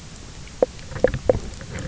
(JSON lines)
{"label": "biophony, knock croak", "recorder": "SoundTrap 300"}